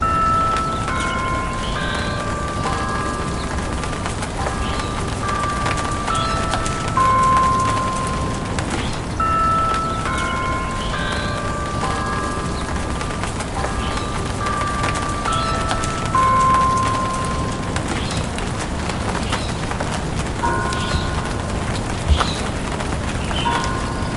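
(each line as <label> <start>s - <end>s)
Distant church bells ring softly, creating a melody as light rain falls. 0.0s - 24.2s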